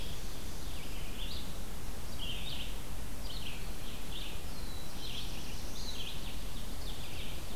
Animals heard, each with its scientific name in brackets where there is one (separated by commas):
Black-throated Blue Warbler (Setophaga caerulescens), Red-eyed Vireo (Vireo olivaceus), Ovenbird (Seiurus aurocapilla)